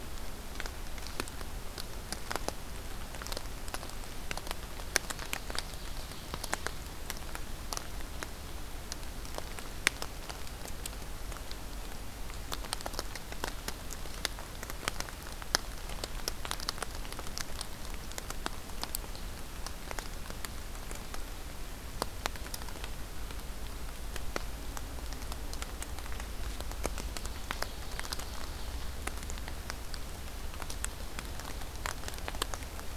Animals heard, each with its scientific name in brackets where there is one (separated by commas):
Ovenbird (Seiurus aurocapilla)